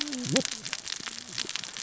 {"label": "biophony, cascading saw", "recorder": "SoundTrap 600 or HydroMoth"}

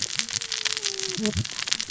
{"label": "biophony, cascading saw", "recorder": "SoundTrap 600 or HydroMoth"}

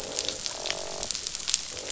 {"label": "biophony, croak", "recorder": "SoundTrap 500"}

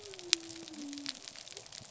{"label": "biophony", "recorder": "SoundTrap 300"}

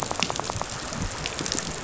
{"label": "biophony, rattle", "recorder": "SoundTrap 500"}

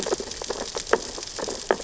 {"label": "biophony, sea urchins (Echinidae)", "recorder": "SoundTrap 600 or HydroMoth"}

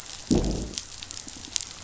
{"label": "biophony, growl", "recorder": "SoundTrap 500"}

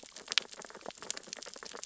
{"label": "biophony, sea urchins (Echinidae)", "recorder": "SoundTrap 600 or HydroMoth"}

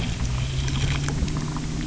{"label": "anthrophony, boat engine", "recorder": "SoundTrap 300"}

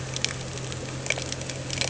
{"label": "anthrophony, boat engine", "recorder": "HydroMoth"}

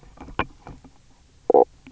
{"label": "biophony, knock croak", "recorder": "SoundTrap 300"}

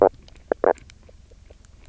{"label": "biophony, knock croak", "recorder": "SoundTrap 300"}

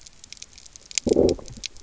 {"label": "biophony, low growl", "recorder": "SoundTrap 300"}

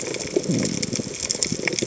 {"label": "biophony", "recorder": "HydroMoth"}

